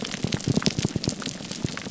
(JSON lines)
{"label": "biophony", "recorder": "SoundTrap 300"}